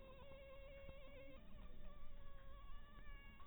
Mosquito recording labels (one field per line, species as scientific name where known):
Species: Anopheles harrisoni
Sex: female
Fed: blood-fed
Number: one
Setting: cup